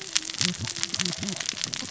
{"label": "biophony, cascading saw", "recorder": "SoundTrap 600 or HydroMoth"}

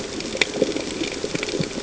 {"label": "ambient", "recorder": "HydroMoth"}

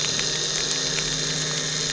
{"label": "anthrophony, boat engine", "recorder": "SoundTrap 300"}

